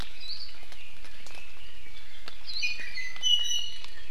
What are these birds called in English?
Red-billed Leiothrix, Iiwi